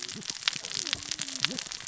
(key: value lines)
label: biophony, cascading saw
recorder: SoundTrap 600 or HydroMoth